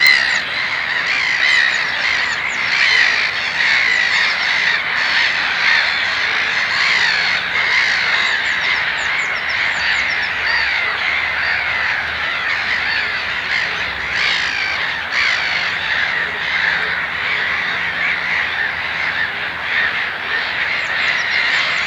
Are the birds loud?
yes